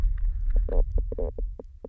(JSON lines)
{"label": "biophony, knock croak", "recorder": "SoundTrap 300"}